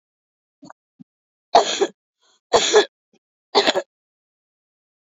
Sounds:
Cough